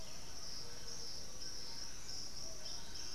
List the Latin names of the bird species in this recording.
Turdus ignobilis, Campylorhynchus turdinus, Crypturellus undulatus, Ramphastos tucanus, Saltator maximus